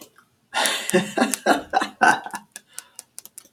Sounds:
Laughter